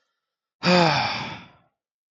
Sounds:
Sigh